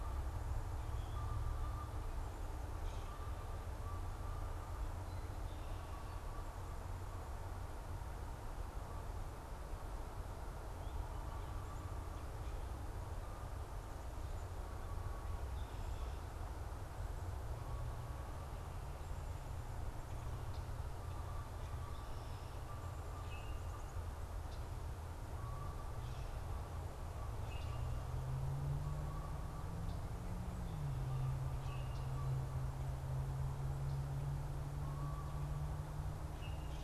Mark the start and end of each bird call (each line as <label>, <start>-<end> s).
unidentified bird, 23.2-23.7 s
Canada Goose (Branta canadensis), 25.3-35.9 s
unidentified bird, 27.3-36.8 s